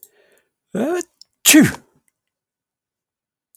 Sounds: Sneeze